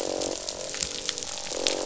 {"label": "biophony, croak", "recorder": "SoundTrap 500"}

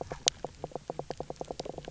{"label": "biophony, knock croak", "recorder": "SoundTrap 300"}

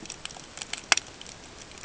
{"label": "ambient", "recorder": "HydroMoth"}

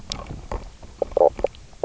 {"label": "biophony, knock croak", "recorder": "SoundTrap 300"}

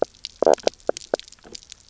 {"label": "biophony, knock croak", "recorder": "SoundTrap 300"}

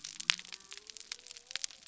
{"label": "biophony", "recorder": "SoundTrap 300"}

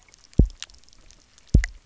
{"label": "biophony, double pulse", "recorder": "SoundTrap 300"}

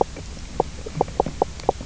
{"label": "biophony, knock croak", "recorder": "SoundTrap 300"}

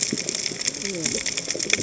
{"label": "biophony, cascading saw", "recorder": "HydroMoth"}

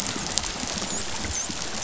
{"label": "biophony, dolphin", "recorder": "SoundTrap 500"}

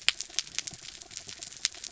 {"label": "anthrophony, mechanical", "recorder": "SoundTrap 300"}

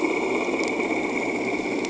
{"label": "anthrophony, boat engine", "recorder": "HydroMoth"}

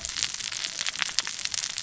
{"label": "biophony, cascading saw", "recorder": "SoundTrap 600 or HydroMoth"}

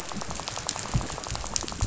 {"label": "biophony, rattle", "recorder": "SoundTrap 500"}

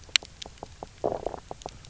{"label": "biophony, low growl", "recorder": "SoundTrap 300"}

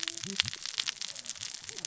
{"label": "biophony, cascading saw", "recorder": "SoundTrap 600 or HydroMoth"}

